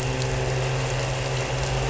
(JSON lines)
{"label": "anthrophony, boat engine", "recorder": "SoundTrap 300"}